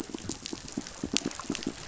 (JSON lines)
{"label": "biophony, pulse", "recorder": "SoundTrap 500"}